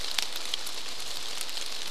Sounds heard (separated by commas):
rain